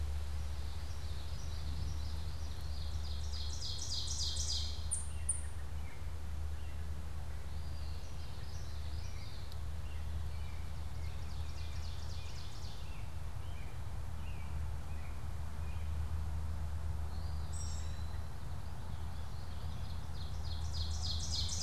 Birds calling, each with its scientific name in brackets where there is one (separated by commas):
American Robin (Turdus migratorius), Common Yellowthroat (Geothlypis trichas), Eastern Wood-Pewee (Contopus virens), Ovenbird (Seiurus aurocapilla)